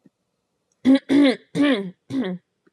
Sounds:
Throat clearing